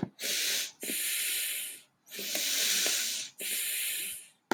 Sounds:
Sniff